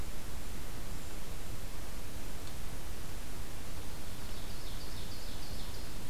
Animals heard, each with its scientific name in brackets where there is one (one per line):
Ovenbird (Seiurus aurocapilla)